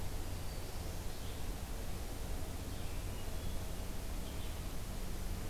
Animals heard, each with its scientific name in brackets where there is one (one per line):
Black-throated Blue Warbler (Setophaga caerulescens)
Red-eyed Vireo (Vireo olivaceus)